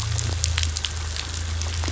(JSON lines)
{"label": "anthrophony, boat engine", "recorder": "SoundTrap 500"}